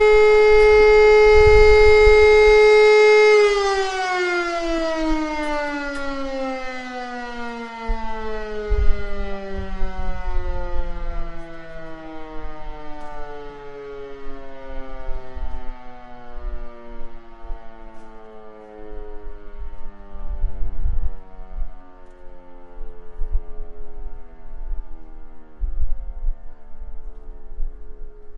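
0.0s A siren fades away. 28.4s
0.0s A siren sounds once. 28.4s
0.0s A siren sounds. 28.4s
3.4s A siren slowly fading away. 28.3s

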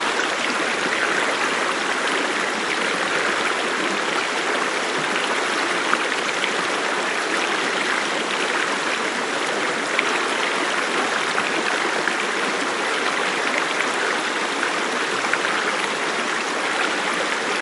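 0.0s The river flows. 17.6s

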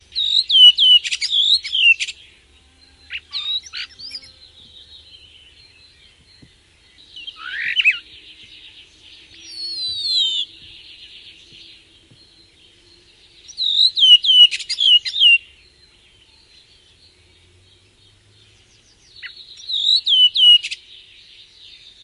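0.0s Birds chirp softly. 22.0s
0.1s A bird chirps loudly with a whistling tone. 2.2s
3.1s Little birds chirp softly. 4.2s
7.1s Small birds chirp in increasingly higher pitches. 8.0s
9.4s A bird whistles a rising melody. 10.5s
13.5s A bird chirps loudly with a whistling tone. 15.4s
19.2s A bird chirps loudly with a whistling tone. 20.8s

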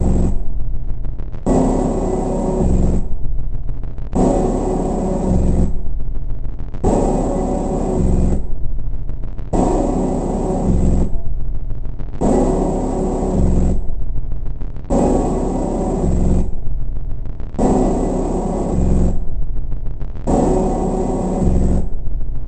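0.0s An alarm sounds distorted and repeats. 22.5s

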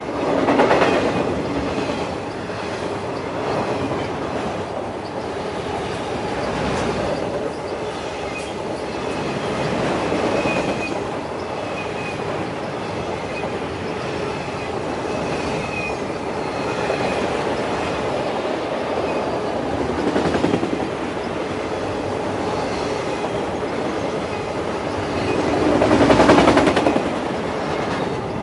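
0.0s A train rolling over tracks with rhythmic clattering. 28.4s
1.8s Soft wind blowing with a gentle, consistent rustling sound in the background. 28.4s

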